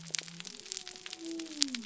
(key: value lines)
label: biophony
recorder: SoundTrap 300